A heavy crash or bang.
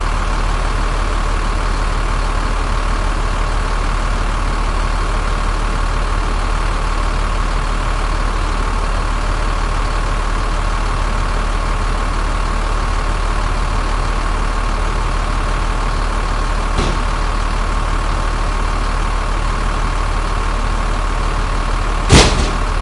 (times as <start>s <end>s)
22.0s 22.7s